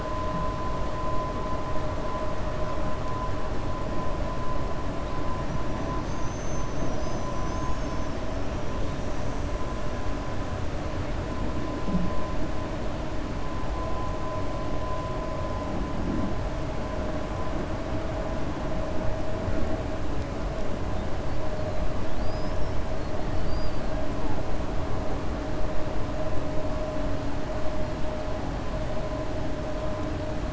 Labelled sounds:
22.1	22.8	killer whale, 4.3 to 5.6 kHz
23.3	23.8	killer whale, 4.3 to 4.9 kHz

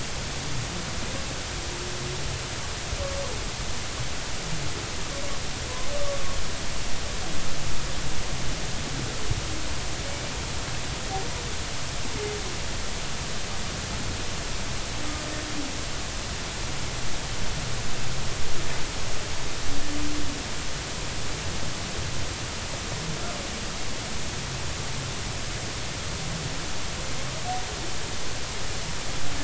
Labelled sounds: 6.0	6.2	humpback whale, 1.1 to 1.2 kHz

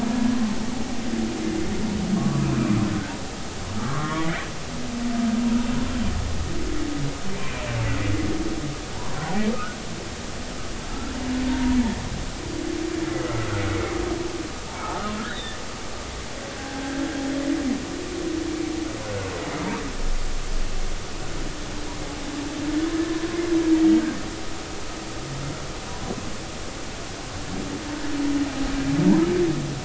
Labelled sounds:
0.1	0.4	humpback whale, 1.6 to 1.7 kHz
2.1	2.5	humpback whale, 1.1 to 1.2 kHz
3.8	4.3	humpback whale, 1.0 to 1.4 kHz
8.9	9.2	humpback whale, 0.86 to 1.2 kHz
10.9	11.8	humpback whale, 0.90 to 1.4 kHz
13.1	13.9	humpback whale, 1.2 to 2.3 kHz
14.7	15.6	humpback whale, 0.80 to 3.9 kHz
16.6	17.0	humpback whale, 0.80 to 1.7 kHz

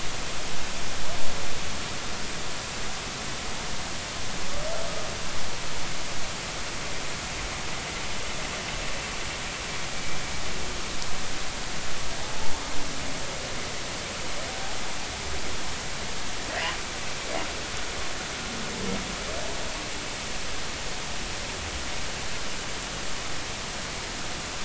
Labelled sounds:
12.2	12.5	humpback whale, 0.80 to 0.96 kHz

